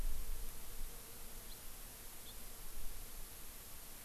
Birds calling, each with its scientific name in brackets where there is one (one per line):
House Finch (Haemorhous mexicanus)